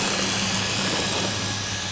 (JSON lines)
{"label": "anthrophony, boat engine", "recorder": "SoundTrap 500"}